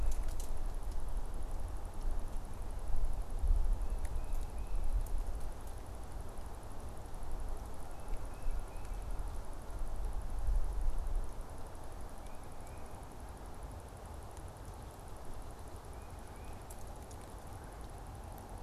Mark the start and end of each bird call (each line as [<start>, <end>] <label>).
[4.02, 5.02] Tufted Titmouse (Baeolophus bicolor)
[8.12, 9.22] Tufted Titmouse (Baeolophus bicolor)
[12.02, 12.92] Tufted Titmouse (Baeolophus bicolor)
[15.82, 16.82] Tufted Titmouse (Baeolophus bicolor)